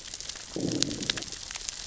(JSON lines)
{"label": "biophony, growl", "recorder": "SoundTrap 600 or HydroMoth"}